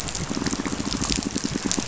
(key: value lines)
label: biophony, rattle
recorder: SoundTrap 500